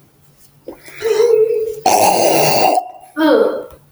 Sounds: Throat clearing